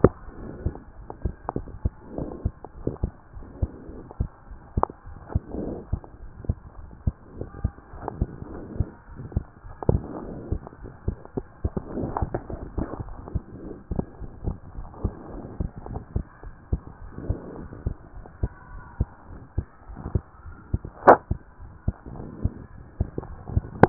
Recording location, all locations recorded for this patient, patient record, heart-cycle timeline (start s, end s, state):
pulmonary valve (PV)
aortic valve (AV)+pulmonary valve (PV)+tricuspid valve (TV)
#Age: Child
#Sex: Male
#Height: 103.0 cm
#Weight: 18.7 kg
#Pregnancy status: False
#Murmur: Present
#Murmur locations: pulmonary valve (PV)+tricuspid valve (TV)
#Most audible location: pulmonary valve (PV)
#Systolic murmur timing: Holosystolic
#Systolic murmur shape: Plateau
#Systolic murmur grading: I/VI
#Systolic murmur pitch: Low
#Systolic murmur quality: Blowing
#Diastolic murmur timing: nan
#Diastolic murmur shape: nan
#Diastolic murmur grading: nan
#Diastolic murmur pitch: nan
#Diastolic murmur quality: nan
#Outcome: Abnormal
#Campaign: 2014 screening campaign
0.18	0.38	diastole
0.38	0.50	S1
0.50	0.60	systole
0.60	0.76	S2
0.76	0.98	diastole
0.98	1.06	S1
1.06	1.20	systole
1.20	1.34	S2
1.34	1.54	diastole
1.54	1.68	S1
1.68	1.84	systole
1.84	1.98	S2
1.98	2.16	diastole
2.16	2.30	S1
2.30	2.40	systole
2.40	2.54	S2
2.54	2.78	diastole
2.78	2.84	S1
2.84	2.98	systole
2.98	3.12	S2
3.12	3.36	diastole
3.36	3.44	S1
3.44	3.58	systole
3.58	3.72	S2
3.72	3.92	diastole
3.92	4.02	S1
4.02	4.16	systole
4.16	4.30	S2
4.30	4.50	diastole
4.50	4.58	S1
4.58	4.72	systole
4.72	4.88	S2
4.88	5.08	diastole
5.08	5.18	S1
5.18	5.30	systole
5.30	5.44	S2
5.44	5.60	diastole
5.60	5.78	S1
5.78	5.88	systole
5.88	6.02	S2
6.02	6.22	diastole
6.22	6.30	S1
6.30	6.44	systole
6.44	6.58	S2
6.58	6.78	diastole
6.78	6.88	S1
6.88	7.02	systole
7.02	7.16	S2
7.16	7.36	diastole
7.36	7.48	S1
7.48	7.60	systole
7.60	7.74	S2
7.74	7.94	diastole
7.94	8.04	S1
8.04	8.18	systole
8.18	8.30	S2
8.30	8.50	diastole
8.50	8.60	S1
8.60	8.74	systole
8.74	8.88	S2
8.88	9.12	diastole
9.12	9.18	S1
9.18	9.32	systole
9.32	9.46	S2
9.46	9.66	diastole
9.66	9.74	S1
9.74	9.90	systole
9.90	10.06	S2
10.06	10.26	diastole
10.26	10.38	S1
10.38	10.50	systole
10.50	10.62	S2
10.62	10.82	diastole
10.82	10.92	S1
10.92	11.04	systole
11.04	11.18	S2
11.18	11.36	diastole
11.36	11.44	S1
11.44	11.60	systole
11.60	11.72	S2
11.72	11.94	diastole
11.94	12.12	S1
12.12	12.20	systole
12.20	12.34	S2
12.34	12.50	diastole
12.50	12.60	S1
12.60	12.76	systole
12.76	12.90	S2
12.90	13.08	diastole
13.08	13.16	S1
13.16	13.30	systole
13.30	13.42	S2
13.42	13.62	diastole
13.62	13.76	S1
13.76	13.92	systole
13.92	14.06	S2
14.06	14.22	diastole
14.22	14.30	S1
14.30	14.44	systole
14.44	14.58	S2
14.58	14.78	diastole
14.78	14.88	S1
14.88	15.02	systole
15.02	15.16	S2
15.16	15.34	diastole
15.34	15.46	S1
15.46	15.58	systole
15.58	15.70	S2
15.70	15.88	diastole
15.88	16.02	S1
16.02	16.12	systole
16.12	16.26	S2
16.26	16.46	diastole
16.46	16.52	S1
16.52	16.70	systole
16.70	16.84	S2
16.84	17.04	diastole
17.04	17.10	S1
17.10	17.24	systole
17.24	17.40	S2
17.40	17.58	diastole
17.58	17.70	S1
17.70	17.84	systole
17.84	17.96	S2
17.96	18.16	diastole
18.16	18.24	S1
18.24	18.40	systole
18.40	18.54	S2
18.54	18.72	diastole
18.72	18.82	S1
18.82	18.96	systole
18.96	19.10	S2
19.10	19.32	diastole
19.32	19.40	S1
19.40	19.54	systole
19.54	19.68	S2
19.68	19.90	diastole
19.90	19.98	S1
19.98	20.12	systole
20.12	20.26	S2
20.26	20.46	diastole
20.46	20.54	S1
20.54	20.70	systole
20.70	20.84	S2
20.84	21.06	diastole
21.06	21.20	S1
21.20	21.32	systole
21.32	21.42	S2
21.42	21.62	diastole
21.62	21.70	S1
21.70	21.84	systole
21.84	21.94	S2
21.94	22.12	diastole
22.12	22.26	S1
22.26	22.42	systole
22.42	22.58	S2
22.58	22.80	diastole
22.80	22.92	S1
22.92	23.16	systole
23.16	23.28	S2
23.28	23.46	diastole
23.46	23.64	S1
23.64	23.78	systole
23.78	23.89	S2